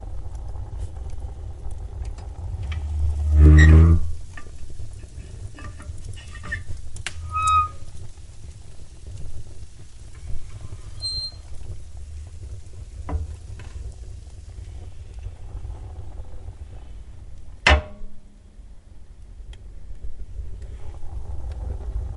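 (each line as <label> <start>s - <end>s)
Fire crackling steadily and calmly. 0.0s - 22.2s
A low humming sound indoors. 3.3s - 4.1s
Steady blunt, clanking metal friction sounds. 4.0s - 7.8s
A metal door opens distinctly. 10.3s - 11.6s
Thumping sound. 13.0s - 13.4s
A boiling sound. 14.5s - 17.1s
A loud metal clanking sound. 17.6s - 17.9s
Boiling sound gradually increases. 20.9s - 22.2s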